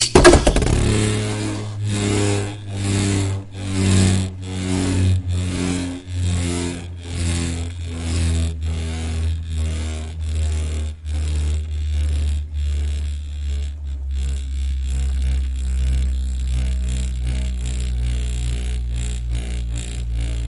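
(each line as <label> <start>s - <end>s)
A beyblade is being launched into an arena. 0.0s - 0.8s
A beyblade spins in an arena, producing a low pulsating sound that gradually decreases in volume and pitch. 0.7s - 20.5s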